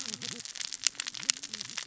{"label": "biophony, cascading saw", "recorder": "SoundTrap 600 or HydroMoth"}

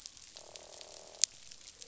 {"label": "biophony, croak", "recorder": "SoundTrap 500"}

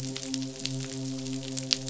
{"label": "biophony, midshipman", "recorder": "SoundTrap 500"}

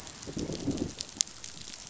{"label": "biophony, growl", "recorder": "SoundTrap 500"}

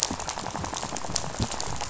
{"label": "biophony, rattle", "recorder": "SoundTrap 500"}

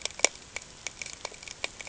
{"label": "ambient", "recorder": "HydroMoth"}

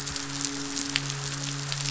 {"label": "biophony, midshipman", "recorder": "SoundTrap 500"}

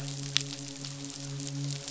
{"label": "biophony, midshipman", "recorder": "SoundTrap 500"}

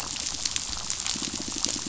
{"label": "biophony, pulse", "recorder": "SoundTrap 500"}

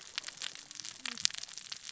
{"label": "biophony, cascading saw", "recorder": "SoundTrap 600 or HydroMoth"}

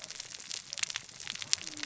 {"label": "biophony, cascading saw", "recorder": "SoundTrap 600 or HydroMoth"}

